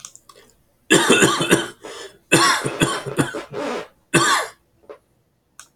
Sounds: Cough